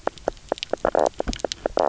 {"label": "biophony, knock croak", "recorder": "SoundTrap 300"}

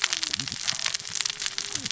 {"label": "biophony, cascading saw", "recorder": "SoundTrap 600 or HydroMoth"}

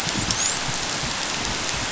{"label": "biophony, dolphin", "recorder": "SoundTrap 500"}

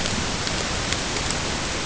{"label": "ambient", "recorder": "HydroMoth"}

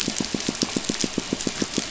{"label": "biophony, pulse", "recorder": "SoundTrap 500"}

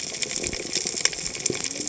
{"label": "biophony, cascading saw", "recorder": "HydroMoth"}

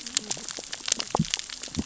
{"label": "biophony, cascading saw", "recorder": "SoundTrap 600 or HydroMoth"}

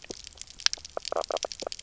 {"label": "biophony, knock croak", "recorder": "SoundTrap 300"}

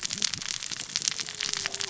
{"label": "biophony, cascading saw", "recorder": "SoundTrap 600 or HydroMoth"}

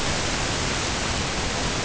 {"label": "ambient", "recorder": "HydroMoth"}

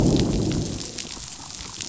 {"label": "biophony, growl", "recorder": "SoundTrap 500"}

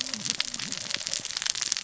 {"label": "biophony, cascading saw", "recorder": "SoundTrap 600 or HydroMoth"}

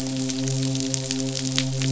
{"label": "biophony, midshipman", "recorder": "SoundTrap 500"}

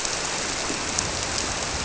{"label": "biophony", "recorder": "SoundTrap 300"}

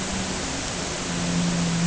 {"label": "anthrophony, boat engine", "recorder": "HydroMoth"}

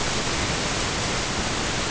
{"label": "ambient", "recorder": "HydroMoth"}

